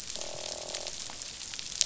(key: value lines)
label: biophony, croak
recorder: SoundTrap 500